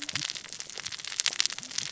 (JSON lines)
{"label": "biophony, cascading saw", "recorder": "SoundTrap 600 or HydroMoth"}